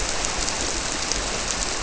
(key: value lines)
label: biophony
recorder: SoundTrap 300